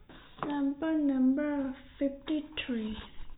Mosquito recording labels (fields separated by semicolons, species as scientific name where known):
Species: no mosquito; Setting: cup